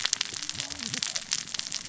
{"label": "biophony, cascading saw", "recorder": "SoundTrap 600 or HydroMoth"}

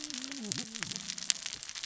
{"label": "biophony, cascading saw", "recorder": "SoundTrap 600 or HydroMoth"}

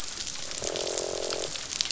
{"label": "biophony, croak", "recorder": "SoundTrap 500"}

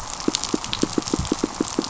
{"label": "biophony, pulse", "recorder": "SoundTrap 500"}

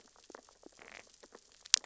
{"label": "biophony, sea urchins (Echinidae)", "recorder": "SoundTrap 600 or HydroMoth"}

